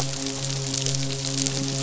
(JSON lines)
{"label": "biophony, midshipman", "recorder": "SoundTrap 500"}